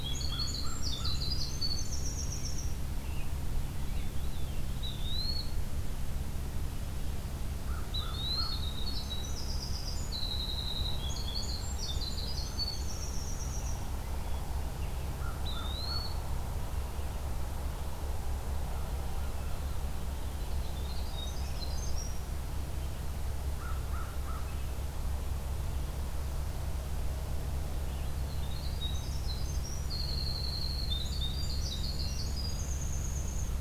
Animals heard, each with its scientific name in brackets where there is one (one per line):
American Crow (Corvus brachyrhynchos)
Eastern Wood-Pewee (Contopus virens)
Veery (Catharus fuscescens)
Winter Wren (Troglodytes hiemalis)